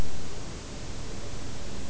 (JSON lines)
{"label": "biophony", "recorder": "SoundTrap 300"}